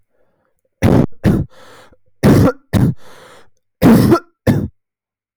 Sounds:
Cough